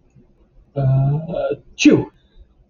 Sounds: Sneeze